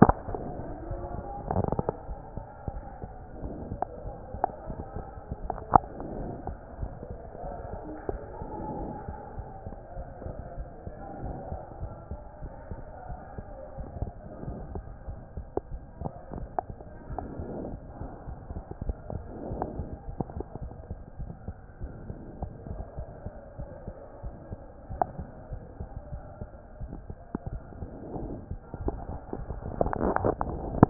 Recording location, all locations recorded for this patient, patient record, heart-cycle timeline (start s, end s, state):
aortic valve (AV)
aortic valve (AV)+mitral valve (MV)
#Age: Child
#Sex: Female
#Height: 77.0 cm
#Weight: 10.3 kg
#Pregnancy status: False
#Murmur: Present
#Murmur locations: aortic valve (AV)+mitral valve (MV)
#Most audible location: mitral valve (MV)
#Systolic murmur timing: Holosystolic
#Systolic murmur shape: Plateau
#Systolic murmur grading: I/VI
#Systolic murmur pitch: Low
#Systolic murmur quality: Harsh
#Diastolic murmur timing: nan
#Diastolic murmur shape: nan
#Diastolic murmur grading: nan
#Diastolic murmur pitch: nan
#Diastolic murmur quality: nan
#Outcome: Abnormal
#Campaign: 2014 screening campaign
0.00	2.05	unannotated
2.05	2.08	diastole
2.08	2.20	S1
2.20	2.36	systole
2.36	2.44	S2
2.44	2.64	diastole
2.64	2.82	S1
2.82	3.02	systole
3.02	3.16	S2
3.16	3.42	diastole
3.42	3.56	S1
3.56	3.68	systole
3.68	3.80	S2
3.80	4.04	diastole
4.04	4.14	S1
4.14	4.30	systole
4.30	4.42	S2
4.42	4.68	diastole
4.68	4.84	S1
4.84	5.06	systole
5.06	5.14	S2
5.14	5.40	diastole
5.40	5.52	S1
5.52	5.68	systole
5.68	5.84	S2
5.84	6.12	diastole
6.12	6.30	S1
6.30	6.46	systole
6.46	6.58	S2
6.58	6.78	diastole
6.78	6.92	S1
6.92	7.08	systole
7.08	7.20	S2
7.20	7.44	diastole
7.44	7.56	S1
7.56	7.72	systole
7.72	7.84	S2
7.84	8.08	diastole
8.08	8.22	S1
8.22	8.40	systole
8.40	8.52	S2
8.52	8.76	diastole
8.76	8.90	S1
8.90	9.06	systole
9.06	9.18	S2
9.18	9.36	diastole
9.36	9.46	S1
9.46	9.66	systole
9.66	9.76	S2
9.76	9.96	diastole
9.96	10.08	S1
10.08	10.22	systole
10.22	10.36	S2
10.36	10.58	diastole
10.58	10.68	S1
10.68	10.86	systole
10.86	10.94	S2
10.94	11.20	diastole
11.20	11.36	S1
11.36	11.48	systole
11.48	11.60	S2
11.60	11.80	diastole
11.80	11.96	S1
11.96	12.10	systole
12.10	12.20	S2
12.20	12.42	diastole
12.42	12.52	S1
12.52	12.70	systole
12.70	12.84	S2
12.84	13.10	diastole
13.10	13.18	S1
13.18	13.38	systole
13.38	13.52	S2
13.52	13.78	diastole
13.78	13.88	S1
13.88	13.98	systole
13.98	14.14	S2
14.14	14.44	diastole
14.44	14.58	S1
14.58	14.72	systole
14.72	14.86	S2
14.86	15.06	diastole
15.06	15.20	S1
15.20	15.36	systole
15.36	15.46	S2
15.46	15.70	diastole
15.70	15.82	S1
15.82	16.00	systole
16.00	16.10	S2
16.10	16.34	diastole
16.34	16.50	S1
16.50	16.70	systole
16.70	16.80	S2
16.80	17.10	diastole
17.10	17.24	S1
17.24	17.38	systole
17.38	17.48	S2
17.48	17.66	diastole
17.66	17.80	S1
17.80	18.02	systole
18.02	18.10	S2
18.10	18.28	diastole
18.28	18.40	S1
18.40	18.50	systole
18.50	18.64	S2
18.64	18.86	diastole
18.86	18.98	S1
18.98	19.10	systole
19.10	19.24	S2
19.24	19.48	diastole
19.48	19.66	S1
19.66	19.76	systole
19.76	19.88	S2
19.88	20.06	diastole
20.06	20.18	S1
20.18	20.34	systole
20.34	20.44	S2
20.44	20.62	diastole
20.62	20.72	S1
20.72	20.88	systole
20.88	20.98	S2
20.98	21.20	diastole
21.20	21.34	S1
21.34	21.48	systole
21.48	21.56	S2
21.56	21.82	diastole
21.82	21.92	S1
21.92	22.06	systole
22.06	22.18	S2
22.18	22.40	diastole
22.40	22.52	S1
22.52	22.70	systole
22.70	22.80	S2
22.80	22.98	diastole
22.98	23.08	S1
23.08	23.24	systole
23.24	23.32	S2
23.32	23.60	diastole
23.60	23.70	S1
23.70	23.88	systole
23.88	23.96	S2
23.96	24.24	diastole
24.24	24.34	S1
24.34	24.52	systole
24.52	24.62	S2
24.62	24.92	diastole
24.92	25.06	S1
25.06	25.18	systole
25.18	25.28	S2
25.28	25.50	diastole
25.50	25.62	S1
25.62	25.80	systole
25.80	25.90	S2
25.90	26.12	diastole
26.12	26.24	S1
26.24	26.42	systole
26.42	26.52	S2
26.52	26.80	diastole
26.80	26.92	S1
26.92	27.06	systole
27.06	27.18	S2
27.18	27.46	diastole
27.46	27.64	S1
27.64	27.80	systole
27.80	27.90	S2
27.90	28.14	diastole
28.14	28.32	S1
28.32	28.50	systole
28.50	28.62	S2
28.62	28.82	diastole
28.82	28.96	S1
28.96	29.06	systole
29.06	29.18	S2
29.18	29.38	diastole
29.38	29.48	S1
29.48	30.90	unannotated